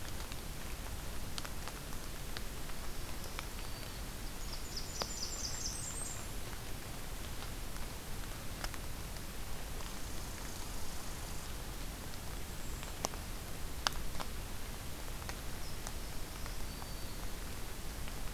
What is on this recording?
Black-throated Green Warbler, Blackburnian Warbler, Red Squirrel, Golden-crowned Kinglet